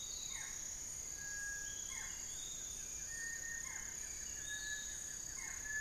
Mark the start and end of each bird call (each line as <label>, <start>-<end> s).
Long-winged Antwren (Myrmotherula longipennis), 0.0-2.7 s
Hauxwell's Thrush (Turdus hauxwelli), 0.0-2.8 s
Barred Forest-Falcon (Micrastur ruficollis), 0.0-5.8 s
Little Tinamou (Crypturellus soui), 0.0-5.8 s
Piratic Flycatcher (Legatus leucophaius), 0.0-5.8 s
Buff-throated Woodcreeper (Xiphorhynchus guttatus), 1.4-5.8 s
Cinereous Tinamou (Crypturellus cinereus), 2.8-3.8 s